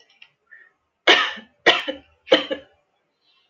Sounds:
Cough